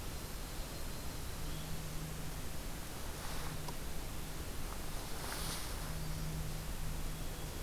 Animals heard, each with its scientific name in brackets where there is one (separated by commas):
Yellow-rumped Warbler (Setophaga coronata)